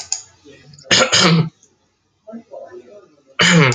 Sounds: Cough